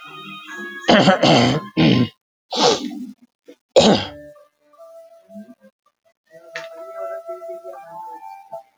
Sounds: Throat clearing